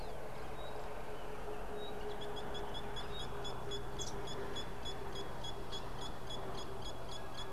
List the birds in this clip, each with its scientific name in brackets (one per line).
Nubian Woodpecker (Campethera nubica)